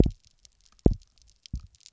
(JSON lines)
{"label": "biophony, double pulse", "recorder": "SoundTrap 300"}